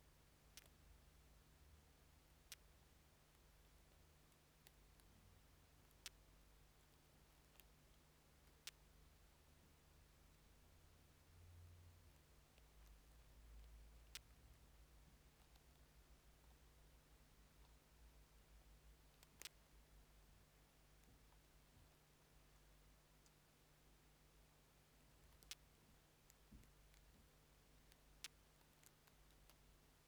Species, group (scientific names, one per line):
Leptophyes punctatissima
Orthoptera